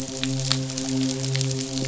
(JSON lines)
{"label": "biophony, midshipman", "recorder": "SoundTrap 500"}